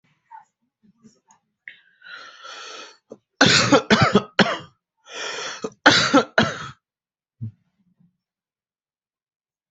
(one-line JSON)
{"expert_labels": [{"quality": "good", "cough_type": "dry", "dyspnea": false, "wheezing": false, "stridor": false, "choking": false, "congestion": false, "nothing": true, "diagnosis": "upper respiratory tract infection", "severity": "mild"}], "age": 32, "gender": "male", "respiratory_condition": false, "fever_muscle_pain": true, "status": "COVID-19"}